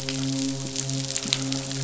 {"label": "biophony, midshipman", "recorder": "SoundTrap 500"}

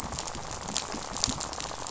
{"label": "biophony, rattle", "recorder": "SoundTrap 500"}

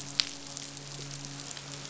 {"label": "biophony, midshipman", "recorder": "SoundTrap 500"}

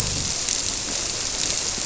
{"label": "biophony", "recorder": "SoundTrap 300"}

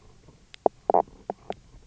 {"label": "biophony, knock croak", "recorder": "SoundTrap 300"}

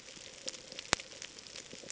{"label": "ambient", "recorder": "HydroMoth"}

